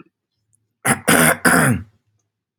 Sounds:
Throat clearing